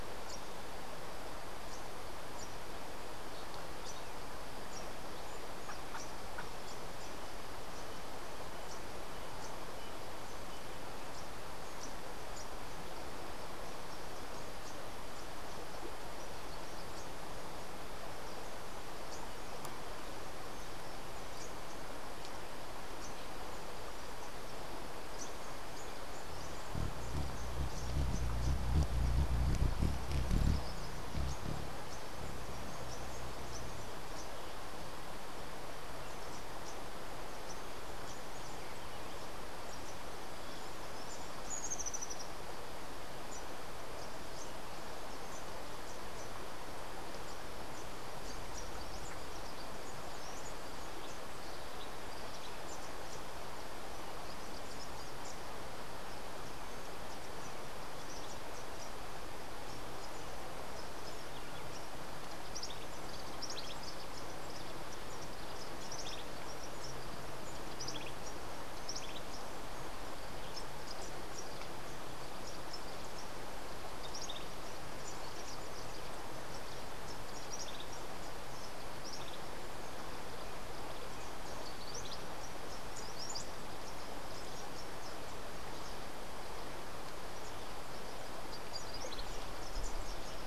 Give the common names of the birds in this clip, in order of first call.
Rufous-tailed Hummingbird, Cabanis's Wren